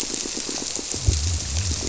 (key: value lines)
label: biophony
recorder: SoundTrap 300